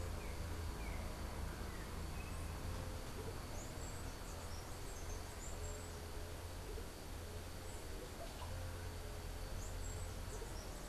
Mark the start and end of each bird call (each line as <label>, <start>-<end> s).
Yellow-backed Oriole (Icterus chrysater), 0.0-2.8 s
unidentified bird, 0.0-10.9 s